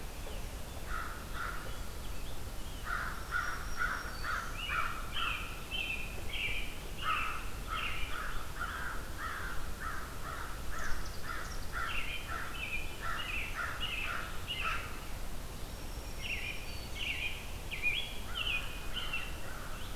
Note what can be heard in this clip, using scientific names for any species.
Turdus migratorius, Corvus brachyrhynchos, Setophaga virens, Chaetura pelagica